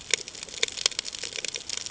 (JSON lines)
{"label": "ambient", "recorder": "HydroMoth"}